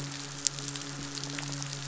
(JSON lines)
{"label": "biophony, midshipman", "recorder": "SoundTrap 500"}